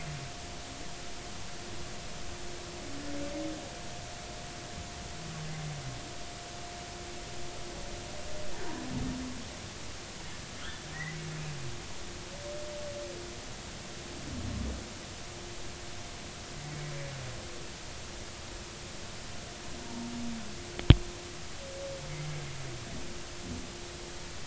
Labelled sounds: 10.9	11.2	humpback whale, 1.8 to 2.1 kHz
19.8	20.1	humpback whale, 0.86 to 0.96 kHz

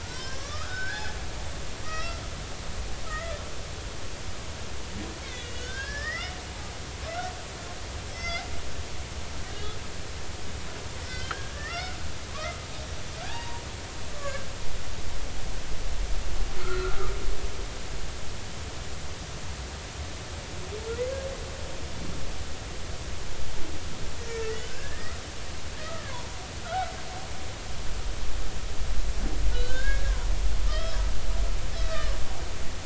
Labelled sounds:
0.0	1.2	humpback whale, 1.1 to 6.2 kHz
1.8	2.2	humpback whale, 1.2 to 5.5 kHz
3.0	3.3	humpback whale, 1.2 to 2.1 kHz
5.2	6.8	humpback whale, 0.80 to 5.5 kHz
7.1	7.3	humpback whale, 1.3 to 1.6 kHz
8.1	8.4	humpback whale, 1.3 to 6.3 kHz
11.0	12.0	humpback whale, 1.1 to 3.3 kHz
12.3	13.6	humpback whale, 0.80 to 1.9 kHz
14.1	14.5	humpback whale, 1.1 to 1.8 kHz
16.6	17.1	humpback whale, 1.1 to 1.5 kHz
24.3	25.2	humpback whale, 1.2 to 2.1 kHz
26.0	26.9	humpback whale, 0.90 to 1.6 kHz
29.5	30.2	humpback whale, 1.4 to 1.7 kHz
30.7	31.0	humpback whale, 1.2 to 3.3 kHz
31.7	32.2	humpback whale, 1.1 to 4.0 kHz

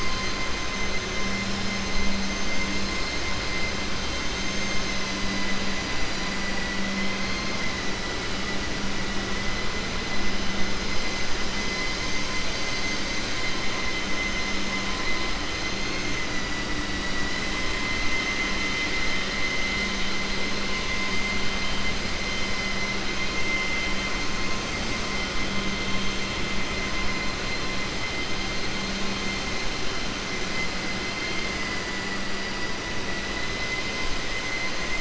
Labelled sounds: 4.3	5.3	vessel noise, 4.9 to 7.3 kHz

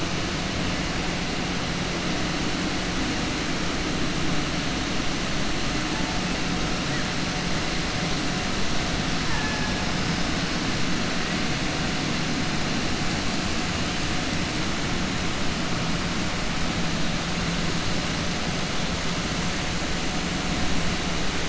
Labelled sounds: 9.2	9.8	killer whale, southern resident, 0.82 to 2.6 kHz

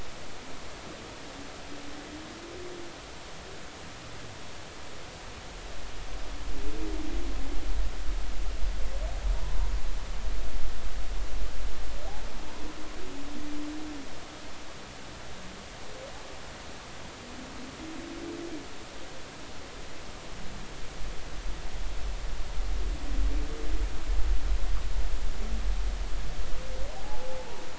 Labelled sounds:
27.0	27.6	humpback whale, 0.80 to 0.99 kHz

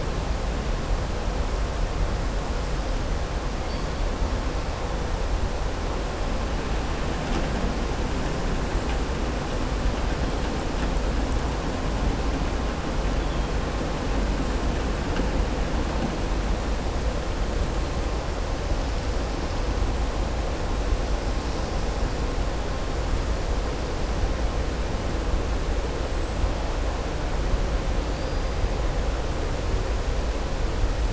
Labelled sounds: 28.1	28.4	killer whale, southern resident, 4.4 to 4.9 kHz

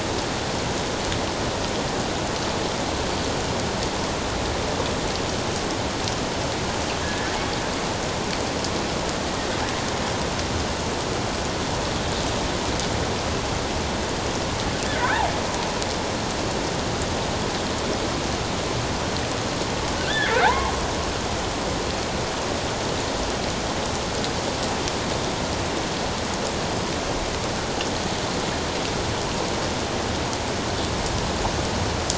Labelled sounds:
7.0	7.3	killer whale, offshore, 1.6 to 1.8 kHz
14.9	15.3	killer whale, offshore, 1.4 to 1.9 kHz
20.0	20.7	killer whale, offshore, 0.78 to 3.6 kHz

